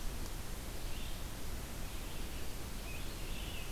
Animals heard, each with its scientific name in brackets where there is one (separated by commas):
Scarlet Tanager (Piranga olivacea), Red-eyed Vireo (Vireo olivaceus)